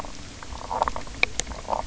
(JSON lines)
{"label": "biophony", "recorder": "SoundTrap 300"}